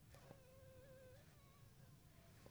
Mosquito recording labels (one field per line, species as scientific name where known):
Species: Anopheles funestus s.s.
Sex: female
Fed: unfed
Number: one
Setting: cup